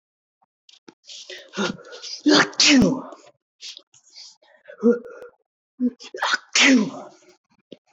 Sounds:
Sneeze